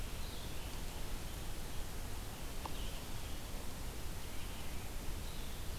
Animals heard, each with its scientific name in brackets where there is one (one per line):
Red-eyed Vireo (Vireo olivaceus)